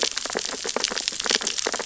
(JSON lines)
{"label": "biophony, sea urchins (Echinidae)", "recorder": "SoundTrap 600 or HydroMoth"}